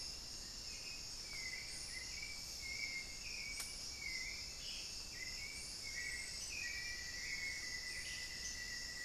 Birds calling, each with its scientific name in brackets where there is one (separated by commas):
Ash-throated Gnateater (Conopophaga peruviana), unidentified bird, Black-faced Antthrush (Formicarius analis), Hauxwell's Thrush (Turdus hauxwelli)